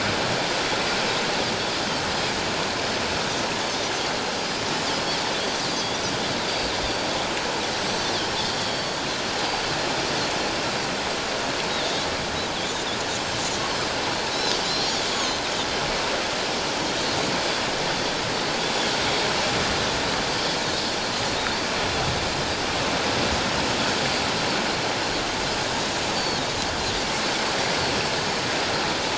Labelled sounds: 5.7	6.0	Pacific white-sided dolphin, 3.3 to 4.8 kHz
6.8	8.0	Pacific white-sided dolphin, 4.4 to 7.9 kHz
8.4	9.0	Pacific white-sided dolphin, 3.2 to 4.6 kHz
9.4	9.7	Pacific white-sided dolphin, 4.5 to 4.8 kHz
11.7	12.1	Pacific white-sided dolphin, 3.2 to 3.9 kHz
14.3	15.4	Pacific white-sided dolphin, 3.8 to 7.0 kHz
26.1	26.4	Pacific white-sided dolphin, 4.1 to 4.6 kHz

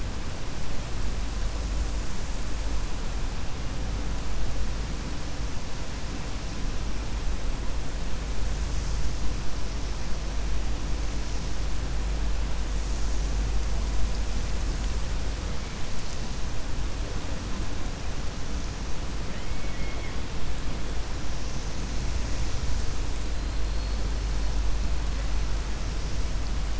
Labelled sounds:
19.5	20.2	killer whale, 1.8 to 2.3 kHz

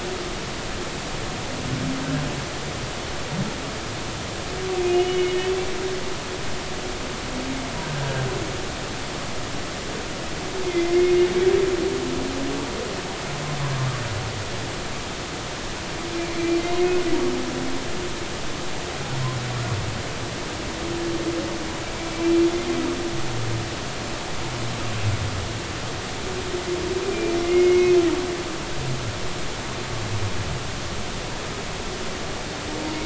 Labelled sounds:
5.1	6.4	humpback whale, 2.1 to 3.0 kHz
10.6	11.3	humpback whale, 2.0 to 2.2 kHz
27.0	27.9	humpback whale, 2.0 to 2.5 kHz

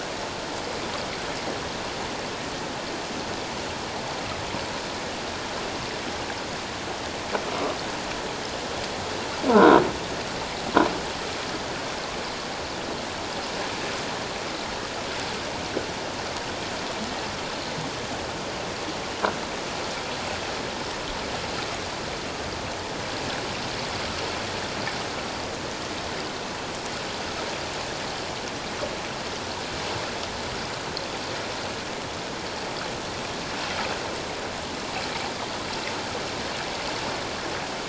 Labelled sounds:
9.6	9.8	croaking sound likely from a nearby submerged object, 3.6 to 3.9 kHz

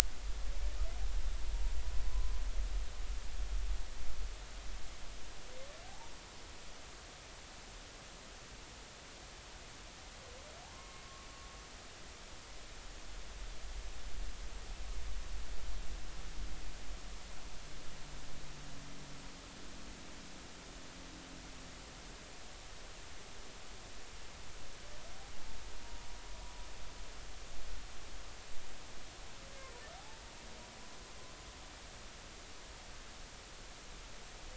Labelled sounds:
2.1	2.3	humpback whale, 0.99 to 1.1 kHz
5.8	6.2	humpback whale, 0.80 to 0.99 kHz
10.7	11.1	humpback whale, 1.0 to 2.2 kHz
30.0	30.2	humpback whale, 0.80 to 0.93 kHz

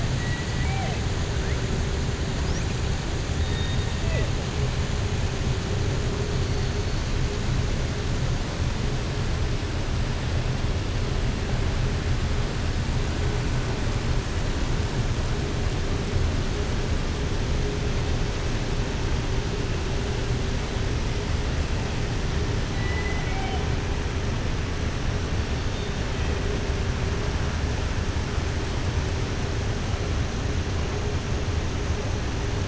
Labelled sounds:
0.1	1.0	killer whale, southern resident, 0.50 to 3.1 kHz
22.7	23.6	killer whale, southern resident, 0.69 to 3.1 kHz

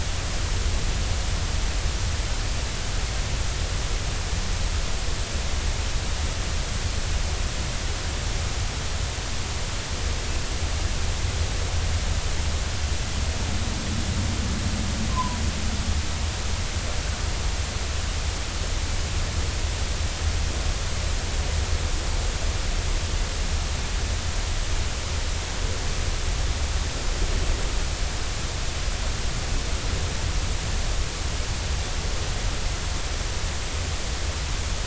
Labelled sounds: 15.1	15.4	humpback whale, 0.86 to 1.1 kHz

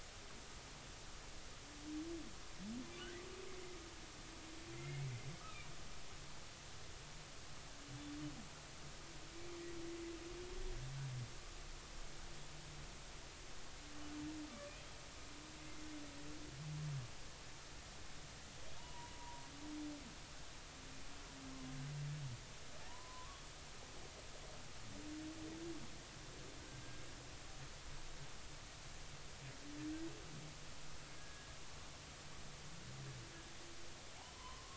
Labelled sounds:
5.4	6.2	humpback whale, 1.2 to 2.6 kHz
18.8	19.4	humpback whale, 0.80 to 1.0 kHz
22.9	23.4	humpback whale, 0.90 to 1.2 kHz
31.2	31.5	humpback whale, 1.6 to 1.7 kHz
34.3	34.6	humpback whale, 0.93 to 1.1 kHz

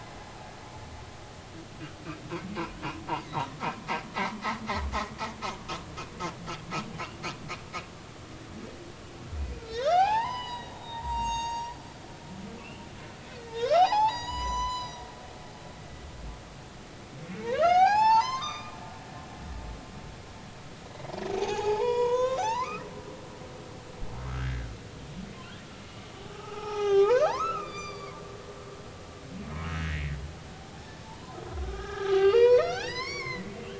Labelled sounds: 3.3	3.5	humpback whale, 3.7 to 4.0 kHz
9.7	11.8	humpback whale, 0.80 to 8.0 kHz
12.6	15.0	humpback whale, 0.80 to 8.0 kHz
17.3	18.8	humpback whale, 0.80 to 8.0 kHz
21.4	22.8	humpback whale, 0.80 to 7.0 kHz
24.3	24.7	humpback whale, 1.2 to 1.8 kHz
26.3	28.2	humpback whale, 0.80 to 6.5 kHz
29.8	30.1	humpback whale, 1.6 to 2.2 kHz
31.0	33.5	humpback whale, 0.80 to 6.8 kHz

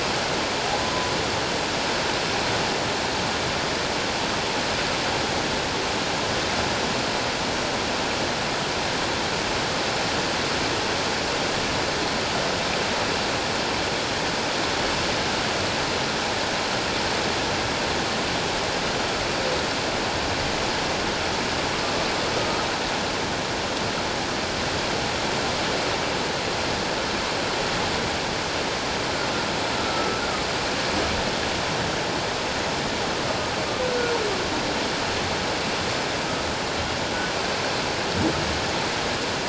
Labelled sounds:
22.3	22.7	humpback whale, 1.2 to 1.3 kHz
29.8	30.2	humpback whale, 1.2 to 1.4 kHz

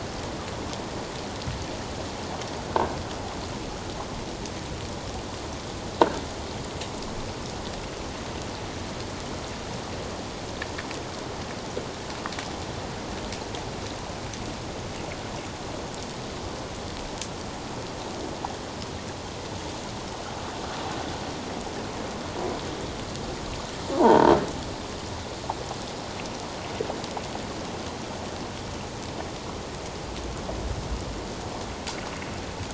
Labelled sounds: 24.0	24.3	croaking sound likely from a nearby submerged object, 0.78 to 1.1 kHz

